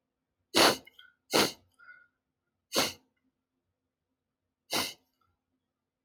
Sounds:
Sniff